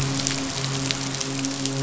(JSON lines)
{"label": "biophony, midshipman", "recorder": "SoundTrap 500"}